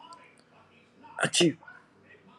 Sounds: Sneeze